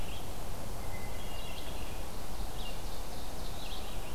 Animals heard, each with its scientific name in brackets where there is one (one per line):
Ovenbird (Seiurus aurocapilla)
Red-eyed Vireo (Vireo olivaceus)
Hermit Thrush (Catharus guttatus)